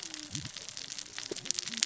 {"label": "biophony, cascading saw", "recorder": "SoundTrap 600 or HydroMoth"}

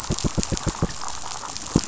{"label": "biophony, knock", "recorder": "SoundTrap 500"}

